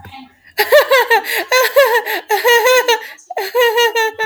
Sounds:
Laughter